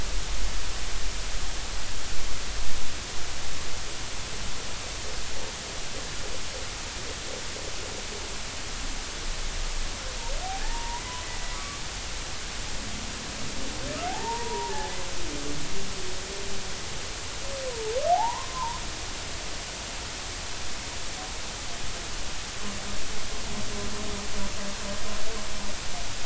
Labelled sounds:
10.4	11.8	humpback whale, 0.80 to 1.2 kHz
14.1	14.9	humpback whale, 0.80 to 1.8 kHz
18.1	18.8	humpback whale, 0.80 to 1.2 kHz

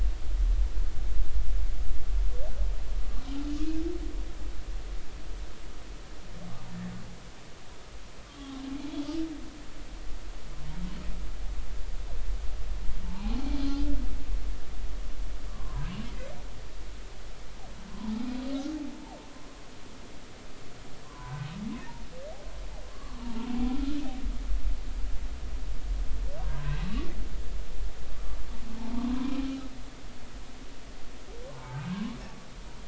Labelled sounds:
8.3	8.6	humpback whale, 1.0 to 1.2 kHz
13.0	13.4	humpback whale, 0.80 to 1.0 kHz
15.5	15.9	humpback whale, 0.86 to 1.2 kHz
21.0	21.5	humpback whale, 0.86 to 1.6 kHz
22.9	23.5	humpback whale, 0.86 to 1.2 kHz
26.4	26.8	humpback whale, 0.90 to 1.7 kHz
29.0	29.4	humpback whale, 0.93 to 1.2 kHz
31.5	32.2	humpback whale, 0.83 to 1.2 kHz

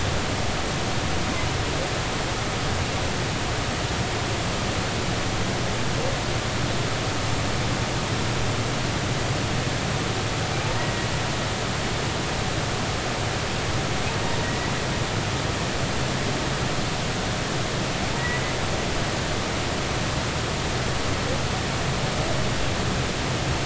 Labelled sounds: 10.6	10.9	humpback whale, 0.83 to 0.99 kHz

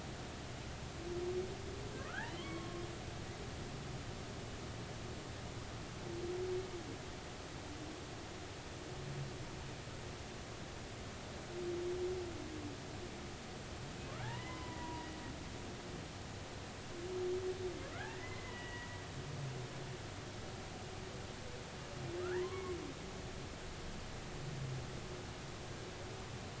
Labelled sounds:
2.0	2.8	humpback whale, 0.99 to 2.3 kHz
14.2	15.1	humpback whale, 0.80 to 2.1 kHz
17.9	18.9	humpback whale, 1.2 to 3.0 kHz
22.2	22.8	humpback whale, 0.86 to 2.3 kHz

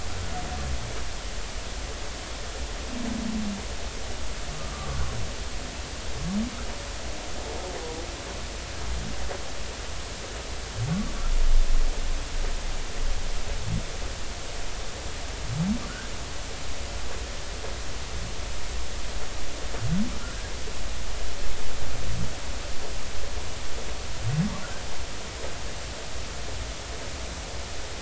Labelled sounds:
4.7	5.0	humpback whale, 1.1 to 1.2 kHz

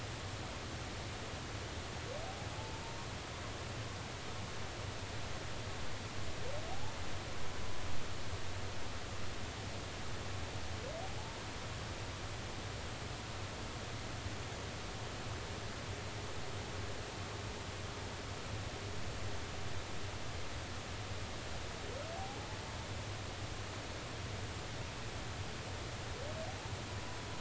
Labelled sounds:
2.5	2.8	humpback whale, 0.83 to 0.96 kHz
22.2	22.4	humpback whale, 0.80 to 0.90 kHz

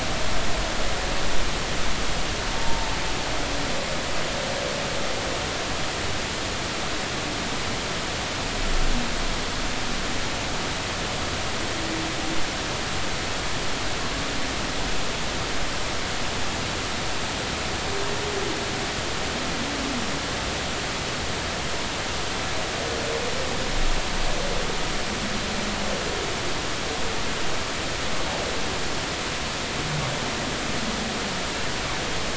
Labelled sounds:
2.6	2.9	humpback whale, 0.86 to 0.96 kHz

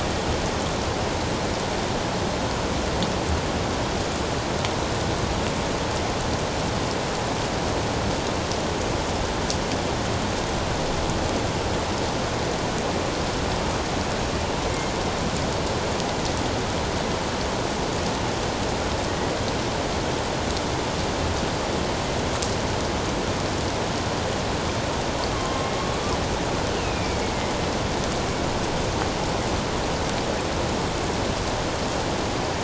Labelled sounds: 25.3	25.7	killer whale, northern resident, A clan, 1.0 to 1.2 kHz
26.8	27.2	killer whale, northern resident, A clan, 2.2 to 2.7 kHz

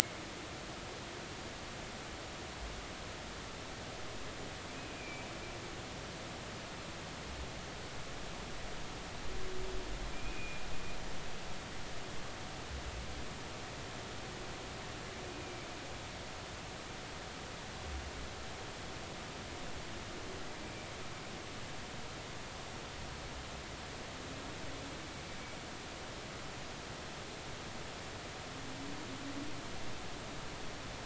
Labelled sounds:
5.0	5.2	humpback whale, 2.2 to 2.5 kHz
10.1	10.6	humpback whale, 2.3 to 2.6 kHz
15.2	15.7	humpback whale, 2.2 to 2.5 kHz

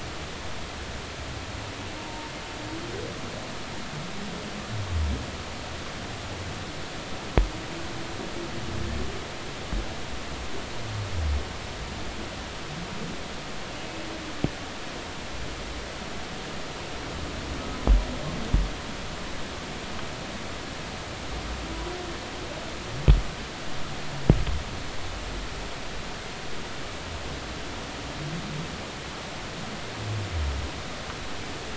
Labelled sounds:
2.0	2.3	humpback whale, 0.86 to 0.99 kHz

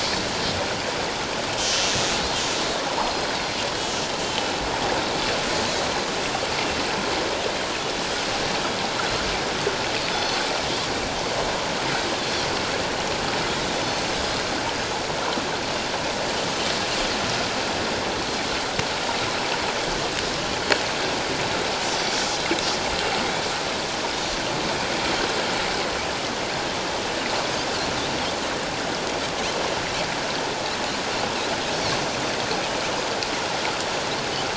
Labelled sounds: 3.0	3.3	Pacific white-sided dolphin, 4.1 to 5.2 kHz
4.2	4.6	Pacific white-sided dolphin, 2.9 to 3.2 kHz
10.1	10.4	Pacific white-sided dolphin, 3.4 to 6.1 kHz

